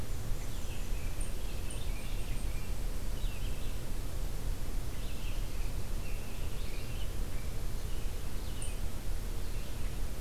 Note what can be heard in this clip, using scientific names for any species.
Mniotilta varia, Vireo olivaceus, Turdus migratorius, unidentified call